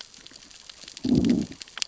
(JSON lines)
{"label": "biophony, growl", "recorder": "SoundTrap 600 or HydroMoth"}